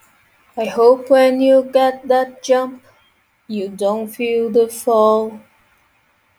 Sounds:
Sigh